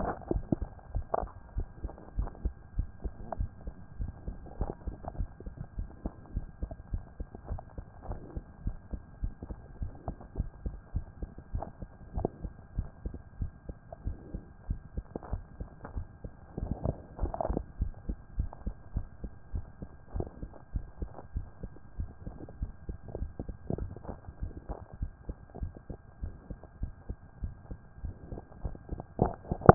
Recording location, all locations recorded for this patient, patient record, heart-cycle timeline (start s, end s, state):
mitral valve (MV)
aortic valve (AV)+pulmonary valve (PV)+tricuspid valve (TV)+mitral valve (MV)
#Age: Child
#Sex: Male
#Height: 131.0 cm
#Weight: 32.5 kg
#Pregnancy status: False
#Murmur: Absent
#Murmur locations: nan
#Most audible location: nan
#Systolic murmur timing: nan
#Systolic murmur shape: nan
#Systolic murmur grading: nan
#Systolic murmur pitch: nan
#Systolic murmur quality: nan
#Diastolic murmur timing: nan
#Diastolic murmur shape: nan
#Diastolic murmur grading: nan
#Diastolic murmur pitch: nan
#Diastolic murmur quality: nan
#Outcome: Abnormal
#Campaign: 2014 screening campaign
0.00	0.81	unannotated
0.81	0.94	diastole
0.94	1.06	S1
1.06	1.20	systole
1.20	1.30	S2
1.30	1.56	diastole
1.56	1.68	S1
1.68	1.82	systole
1.82	1.92	S2
1.92	2.16	diastole
2.16	2.30	S1
2.30	2.44	systole
2.44	2.54	S2
2.54	2.76	diastole
2.76	2.88	S1
2.88	3.04	systole
3.04	3.14	S2
3.14	3.38	diastole
3.38	3.50	S1
3.50	3.64	systole
3.64	3.74	S2
3.74	4.00	diastole
4.00	4.12	S1
4.12	4.26	systole
4.26	4.36	S2
4.36	4.58	diastole
4.58	4.72	S1
4.72	4.86	systole
4.86	4.96	S2
4.96	5.18	diastole
5.18	5.28	S1
5.28	5.44	systole
5.44	5.54	S2
5.54	5.78	diastole
5.78	5.88	S1
5.88	6.04	systole
6.04	6.12	S2
6.12	6.34	diastole
6.34	6.46	S1
6.46	6.60	systole
6.60	6.70	S2
6.70	6.92	diastole
6.92	7.04	S1
7.04	7.18	systole
7.18	7.28	S2
7.28	7.48	diastole
7.48	7.60	S1
7.60	7.76	systole
7.76	7.86	S2
7.86	8.08	diastole
8.08	8.20	S1
8.20	8.34	systole
8.34	8.44	S2
8.44	8.64	diastole
8.64	8.76	S1
8.76	8.92	systole
8.92	9.02	S2
9.02	9.22	diastole
9.22	9.34	S1
9.34	9.48	systole
9.48	9.56	S2
9.56	9.80	diastole
9.80	9.92	S1
9.92	10.06	systole
10.06	10.16	S2
10.16	10.36	diastole
10.36	10.50	S1
10.50	10.64	systole
10.64	10.76	S2
10.76	10.94	diastole
10.94	11.06	S1
11.06	11.20	systole
11.20	11.30	S2
11.30	11.52	diastole
11.52	11.64	S1
11.64	11.80	systole
11.80	11.88	S2
11.88	12.14	diastole
12.14	12.28	S1
12.28	12.42	systole
12.42	12.52	S2
12.52	12.76	diastole
12.76	12.88	S1
12.88	13.04	systole
13.04	13.14	S2
13.14	13.40	diastole
13.40	13.52	S1
13.52	13.68	systole
13.68	13.76	S2
13.76	14.04	diastole
14.04	14.18	S1
14.18	14.32	systole
14.32	14.42	S2
14.42	14.68	diastole
14.68	14.80	S1
14.80	14.96	systole
14.96	15.04	S2
15.04	15.30	diastole
15.30	29.74	unannotated